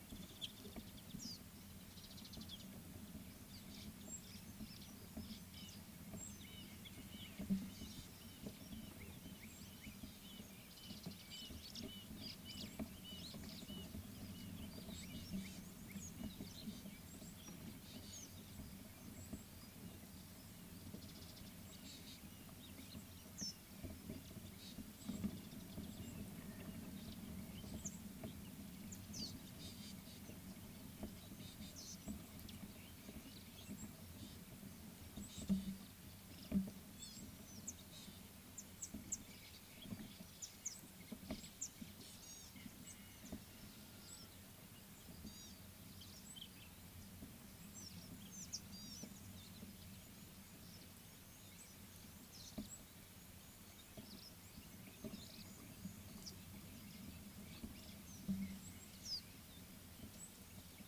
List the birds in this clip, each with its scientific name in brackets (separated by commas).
Mariqua Sunbird (Cinnyris mariquensis), Gray-backed Camaroptera (Camaroptera brevicaudata), Red-fronted Barbet (Tricholaema diademata)